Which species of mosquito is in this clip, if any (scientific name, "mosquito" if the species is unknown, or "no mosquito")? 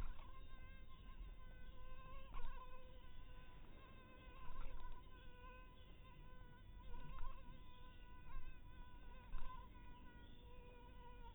mosquito